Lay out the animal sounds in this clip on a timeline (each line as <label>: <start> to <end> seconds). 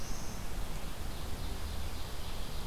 Red-eyed Vireo (Vireo olivaceus): 0.0 to 2.7 seconds
Ovenbird (Seiurus aurocapilla): 0.5 to 2.7 seconds